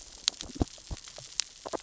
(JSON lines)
{"label": "biophony, grazing", "recorder": "SoundTrap 600 or HydroMoth"}